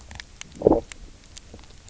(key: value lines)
label: biophony, low growl
recorder: SoundTrap 300